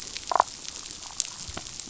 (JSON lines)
{"label": "biophony, damselfish", "recorder": "SoundTrap 500"}